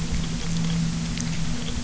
{"label": "anthrophony, boat engine", "recorder": "SoundTrap 300"}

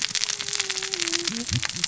{"label": "biophony, cascading saw", "recorder": "SoundTrap 600 or HydroMoth"}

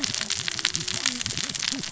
{"label": "biophony, cascading saw", "recorder": "SoundTrap 600 or HydroMoth"}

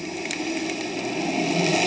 {"label": "anthrophony, boat engine", "recorder": "HydroMoth"}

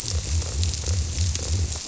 {"label": "biophony", "recorder": "SoundTrap 300"}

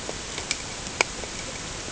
{"label": "ambient", "recorder": "HydroMoth"}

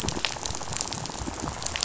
{"label": "biophony, rattle", "recorder": "SoundTrap 500"}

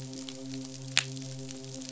{"label": "biophony, midshipman", "recorder": "SoundTrap 500"}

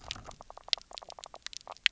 {"label": "biophony, knock croak", "recorder": "SoundTrap 300"}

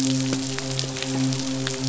{"label": "biophony, midshipman", "recorder": "SoundTrap 500"}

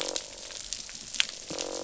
{"label": "biophony, croak", "recorder": "SoundTrap 500"}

